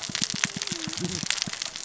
{"label": "biophony, cascading saw", "recorder": "SoundTrap 600 or HydroMoth"}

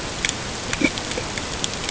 {"label": "ambient", "recorder": "HydroMoth"}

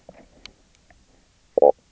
{"label": "biophony, knock croak", "recorder": "SoundTrap 300"}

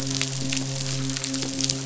{"label": "biophony, midshipman", "recorder": "SoundTrap 500"}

